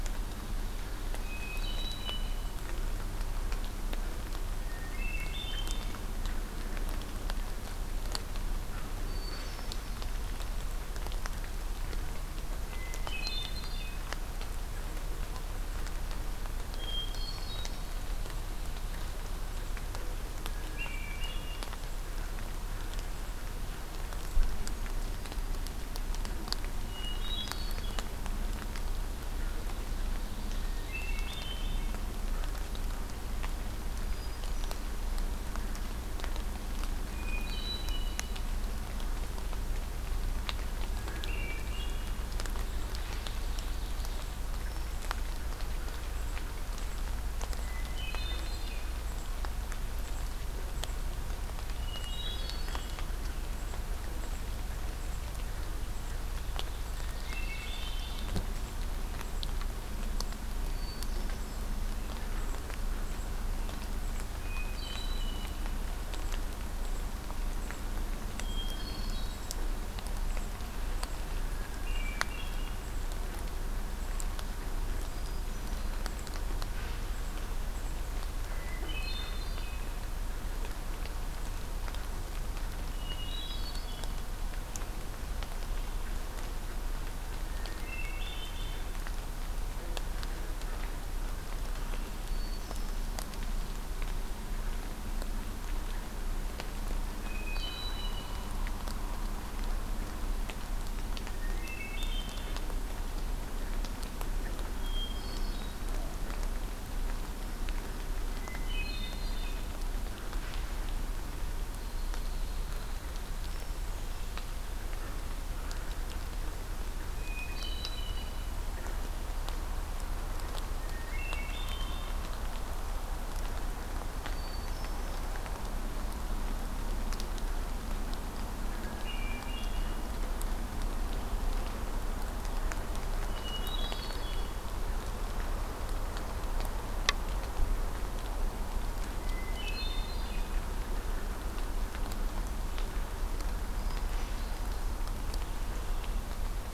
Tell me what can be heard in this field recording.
Ovenbird, Hermit Thrush, Red-winged Blackbird